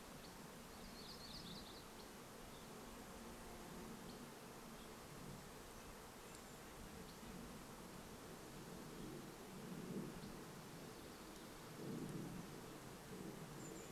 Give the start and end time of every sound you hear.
0s-2s: warbler song
0s-10s: insect buzz
0s-14s: airplane
6s-8s: Golden-crowned Kinglet call
10s-12s: Dark-eyed Junco song
12s-14s: Golden-crowned Kinglet call
12s-14s: Red-breasted Nuthatch song

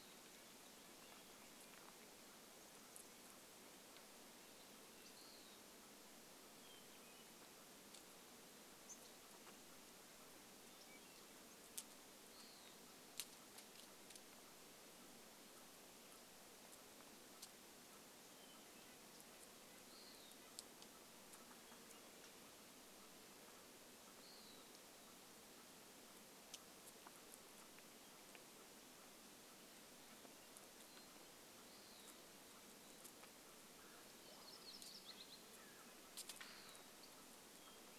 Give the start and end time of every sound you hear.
0s-2s: Red-breasted Nuthatch song
0s-2s: Western Wood-Pewee song
2s-38s: chipmunk chirp
4s-6s: Western Wood-Pewee song
4s-8s: Hermit Thrush song
8s-10s: unidentified bird chip note
10s-12s: Hermit Thrush song
12s-14s: Western Wood-Pewee song
18s-20s: Hermit Thrush song
18s-22s: Western Wood-Pewee song
24s-26s: Western Wood-Pewee song
30s-32s: Hermit Thrush song
30s-34s: Western Wood-Pewee song
34s-36s: Mountain Quail call
34s-36s: Red-breasted Nuthatch song
34s-36s: Yellow-rumped Warbler song
36s-38s: Hermit Thrush song
36s-38s: Western Wood-Pewee song

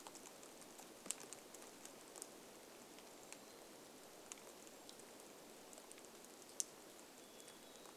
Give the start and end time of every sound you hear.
0s-8s: rain
2s-4s: Black-capped Chickadee song
4s-6s: Brown Creeper call
6s-8s: Black-capped Chickadee song

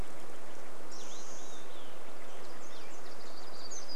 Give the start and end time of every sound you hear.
0s-2s: Olive-sided Flycatcher song
0s-2s: Spotted Towhee song
0s-2s: unidentified sound
0s-4s: Steller's Jay call
2s-4s: warbler song

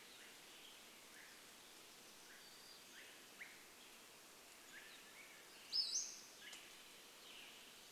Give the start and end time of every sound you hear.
0s-8s: Swainson's Thrush call
2s-4s: warbler song
4s-6s: Pacific-slope Flycatcher call
4s-6s: Swainson's Thrush song
6s-8s: Western Tanager song

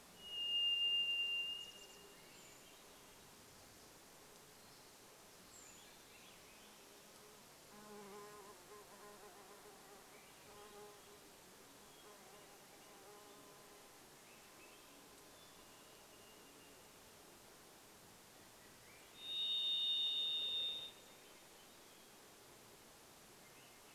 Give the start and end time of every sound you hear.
0s-2s: Chestnut-backed Chickadee call
0s-4s: Varied Thrush song
0s-18s: insect buzz
2s-6s: Brown Creeper call
2s-8s: Swainson's Thrush song
10s-16s: Swainson's Thrush song
14s-16s: Hermit Thrush song
14s-22s: Varied Thrush song
18s-24s: Swainson's Thrush song

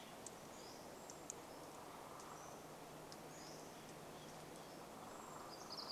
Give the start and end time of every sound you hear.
0s-4s: Pacific-slope Flycatcher song
4s-6s: Pacific Wren song
4s-6s: woodpecker drumming

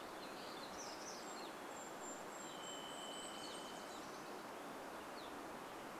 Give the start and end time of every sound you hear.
0s-2s: warbler song
0s-4s: Golden-crowned Kinglet song
0s-6s: Evening Grosbeak call
2s-4s: Varied Thrush song
2s-6s: Dark-eyed Junco song
4s-6s: Western Tanager song

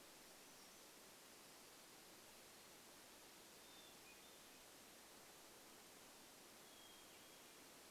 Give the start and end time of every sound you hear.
0s-2s: Black-throated Gray Warbler song
2s-8s: Hermit Thrush song

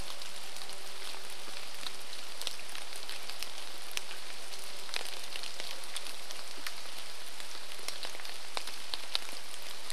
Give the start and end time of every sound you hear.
0s-6s: chainsaw
0s-10s: rain
8s-10s: chainsaw

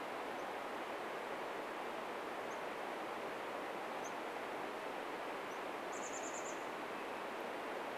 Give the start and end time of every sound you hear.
0s-6s: unidentified bird chip note
4s-8s: Chestnut-backed Chickadee call

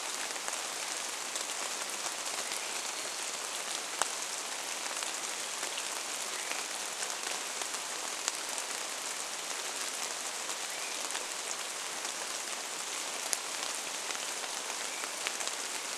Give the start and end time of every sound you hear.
0s-16s: rain
2s-4s: Varied Thrush song
6s-8s: Swainson's Thrush call
10s-12s: Swainson's Thrush call
14s-16s: Swainson's Thrush call

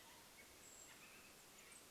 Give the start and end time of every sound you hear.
0s-2s: Canada Jay call
0s-2s: Golden-crowned Kinglet call

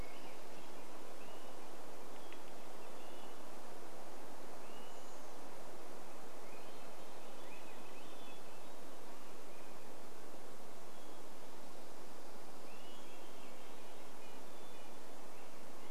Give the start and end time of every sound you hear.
0s-2s: Dark-eyed Junco song
0s-2s: Swainson's Thrush song
0s-6s: Swainson's Thrush call
2s-4s: Hermit Thrush song
2s-4s: woodpecker drumming
4s-6s: Chestnut-backed Chickadee call
4s-6s: Red-breasted Nuthatch song
6s-10s: Swainson's Thrush song
6s-16s: Hermit Thrush song
10s-14s: Dark-eyed Junco song
12s-14s: Swainson's Thrush call
14s-16s: Red-breasted Nuthatch song

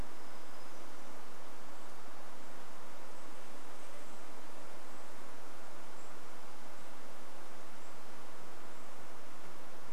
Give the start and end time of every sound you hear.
0s-2s: unidentified sound
2s-4s: insect buzz
2s-10s: Golden-crowned Kinglet call

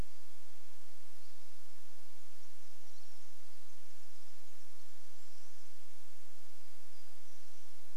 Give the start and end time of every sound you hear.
0s-4s: Pine Siskin call
4s-6s: Golden-crowned Kinglet song
6s-8s: warbler song

